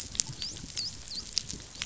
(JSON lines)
{"label": "biophony, dolphin", "recorder": "SoundTrap 500"}